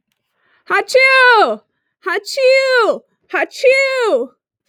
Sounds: Sneeze